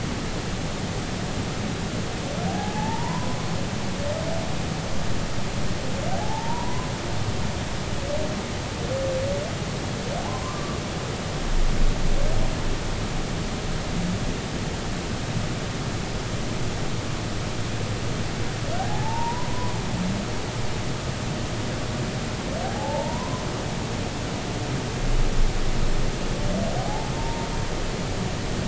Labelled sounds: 2.5	3.4	humpback whale, 0.80 to 1.1 kHz
6.1	6.9	humpback whale, 0.80 to 1.1 kHz
10.3	10.8	humpback whale, 0.96 to 1.2 kHz
18.7	19.7	humpback whale, 0.80 to 1.7 kHz
22.6	23.4	humpback whale, 0.80 to 1.1 kHz
26.8	27.5	humpback whale, 0.80 to 0.96 kHz

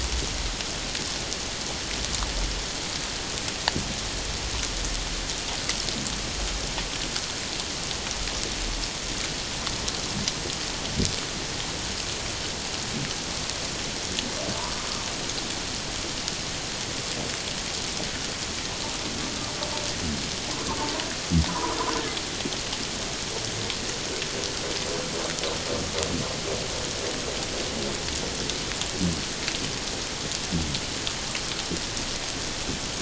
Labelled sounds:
21.5	21.8	humpback whale, 0.91 to 1.3 kHz

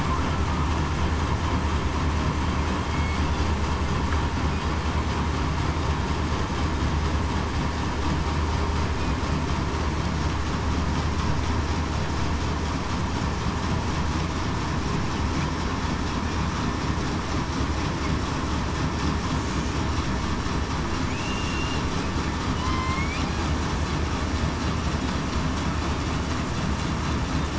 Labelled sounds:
2.8	3.1	killer whale, southern resident, 3.2 to 3.4 kHz
22.6	23.1	killer whale, southern resident, 0.98 to 1.1 kHz

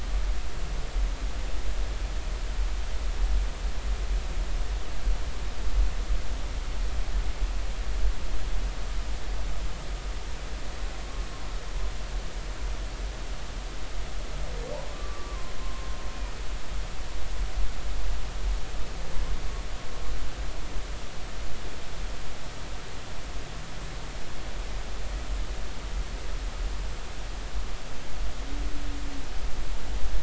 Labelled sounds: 0.3	0.7	humpback whale, 1.2 to 1.4 kHz
14.9	15.9	humpback whale, 0.99 to 1.2 kHz

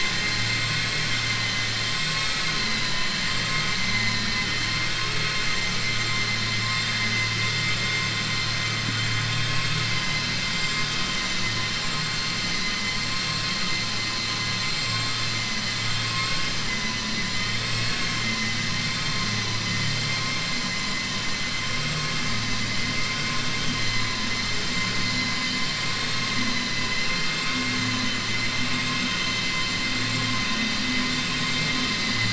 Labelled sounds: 15.9	16.5	vessel noise, 0.56 to 4.3 kHz

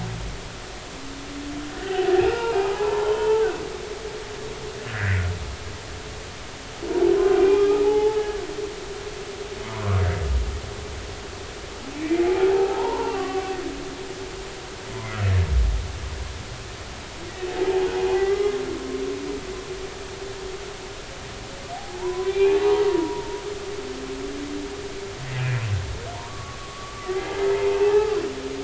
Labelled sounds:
1.8	3.5	humpback whale, 0.80 to 3.2 kHz
4.8	5.2	humpback whale, 1.5 to 2.1 kHz
7.4	8.2	humpback whale, 0.80 to 2.5 kHz
12.2	13.5	humpback whale, 0.80 to 1.2 kHz
17.6	18.6	humpback whale, 0.80 to 2.1 kHz
21.7	23.4	humpback whale, 0.80 to 2.6 kHz
26.1	28.2	humpback whale, 0.80 to 2.1 kHz

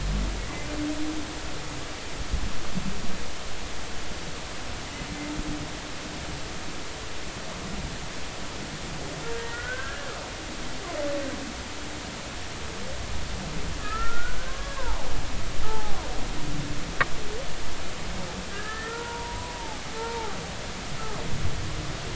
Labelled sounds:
0.4	0.7	humpback whale, 1.9 to 2.1 kHz
9.4	10.1	humpback whale, 1.3 to 2.0 kHz
13.8	16.0	humpback whale, 0.80 to 1.9 kHz
18.5	20.4	humpback whale, 0.80 to 1.9 kHz

